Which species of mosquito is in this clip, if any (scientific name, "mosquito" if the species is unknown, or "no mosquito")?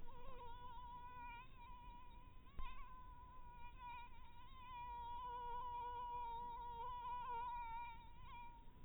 mosquito